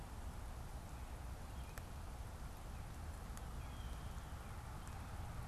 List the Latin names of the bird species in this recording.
Cardinalis cardinalis, Cyanocitta cristata